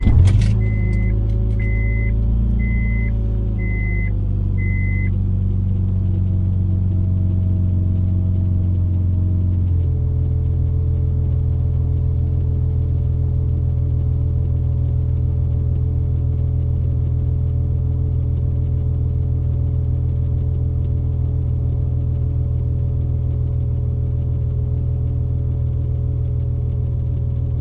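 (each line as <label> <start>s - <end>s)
A loud, rumbling engine starts inside a vehicle. 0.0s - 1.2s
A siren inside a car rings loudly in a constant pattern. 1.2s - 6.7s
A loud, steady, and constant rumbling of an idling engine. 1.2s - 27.6s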